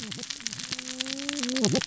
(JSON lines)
{"label": "biophony, cascading saw", "recorder": "SoundTrap 600 or HydroMoth"}